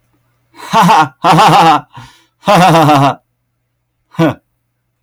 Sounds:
Laughter